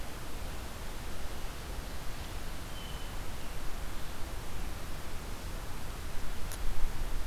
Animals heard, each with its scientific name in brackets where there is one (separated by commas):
unidentified call